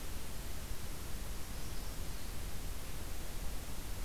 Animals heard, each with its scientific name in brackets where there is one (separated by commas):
Magnolia Warbler (Setophaga magnolia)